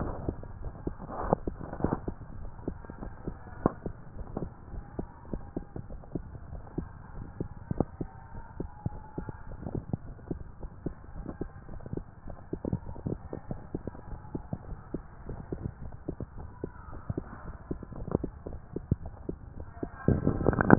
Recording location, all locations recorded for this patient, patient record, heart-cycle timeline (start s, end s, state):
tricuspid valve (TV)
aortic valve (AV)+pulmonary valve (PV)+tricuspid valve (TV)+mitral valve (MV)
#Age: Child
#Sex: Female
#Height: 161.0 cm
#Weight: 43.8 kg
#Pregnancy status: False
#Murmur: Absent
#Murmur locations: nan
#Most audible location: nan
#Systolic murmur timing: nan
#Systolic murmur shape: nan
#Systolic murmur grading: nan
#Systolic murmur pitch: nan
#Systolic murmur quality: nan
#Diastolic murmur timing: nan
#Diastolic murmur shape: nan
#Diastolic murmur grading: nan
#Diastolic murmur pitch: nan
#Diastolic murmur quality: nan
#Outcome: Normal
#Campaign: 2015 screening campaign
0.00	3.94	unannotated
3.94	4.16	diastole
4.16	4.28	S1
4.28	4.38	systole
4.38	4.50	S2
4.50	4.72	diastole
4.72	4.84	S1
4.84	4.94	systole
4.94	5.08	S2
5.08	5.30	diastole
5.30	5.42	S1
5.42	5.52	systole
5.52	5.64	S2
5.64	5.88	diastole
5.88	6.02	S1
6.02	6.14	systole
6.14	6.26	S2
6.26	6.50	diastole
6.50	6.62	S1
6.62	6.74	systole
6.74	6.88	S2
6.88	7.16	diastole
7.16	7.30	S1
7.30	7.38	systole
7.38	7.50	S2
7.50	7.70	diastole
7.70	7.86	S1
7.86	7.98	systole
7.98	8.10	S2
8.10	8.36	diastole
8.36	8.46	S1
8.46	8.56	systole
8.56	8.70	S2
8.70	8.94	diastole
8.94	9.02	S1
9.02	9.16	systole
9.16	9.28	S2
9.28	9.50	diastole
9.50	9.62	S1
9.62	9.72	systole
9.72	9.84	S2
9.84	10.08	diastole
10.08	10.18	S1
10.18	10.28	systole
10.28	10.42	S2
10.42	10.64	diastole
10.64	10.74	S1
10.74	10.84	systole
10.84	10.96	S2
10.96	11.16	diastole
11.16	11.28	S1
11.28	11.38	systole
11.38	11.52	S2
11.52	11.72	diastole
11.72	11.82	S1
11.82	11.90	systole
11.90	12.04	S2
12.04	12.28	diastole
12.28	12.38	S1
12.38	12.48	systole
12.48	12.62	S2
12.62	12.88	diastole
12.88	12.98	S1
12.98	13.06	systole
13.06	13.22	S2
13.22	13.50	diastole
13.50	13.62	S1
13.62	13.70	systole
13.70	13.82	S2
13.82	14.08	diastole
14.08	14.20	S1
14.20	14.32	systole
14.32	14.46	S2
14.46	14.70	diastole
14.70	14.82	S1
14.82	14.92	systole
14.92	15.02	S2
15.02	15.28	diastole
15.28	15.40	S1
15.40	15.50	systole
15.50	15.62	S2
15.62	15.82	diastole
15.82	15.94	S1
15.94	16.04	systole
16.04	16.14	S2
16.14	16.38	diastole
16.38	16.52	S1
16.52	16.62	systole
16.62	16.74	S2
16.74	16.96	diastole
16.96	20.78	unannotated